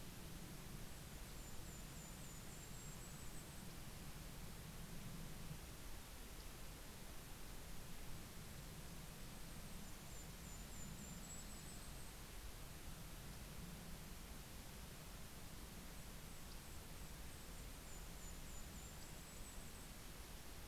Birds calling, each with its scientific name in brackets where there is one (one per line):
Yellow-rumped Warbler (Setophaga coronata)
Golden-crowned Kinglet (Regulus satrapa)